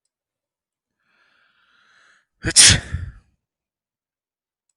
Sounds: Sneeze